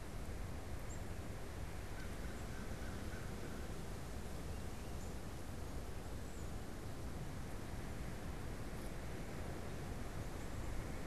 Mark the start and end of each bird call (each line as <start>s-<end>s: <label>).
0.0s-11.1s: Tufted Titmouse (Baeolophus bicolor)
1.8s-3.7s: American Crow (Corvus brachyrhynchos)